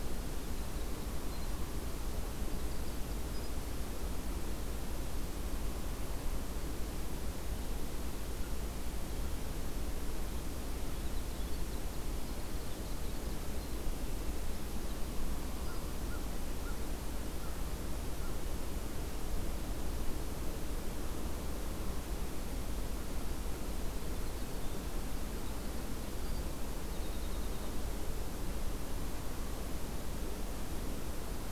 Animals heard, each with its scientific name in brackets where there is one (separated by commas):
American Crow (Corvus brachyrhynchos), Winter Wren (Troglodytes hiemalis)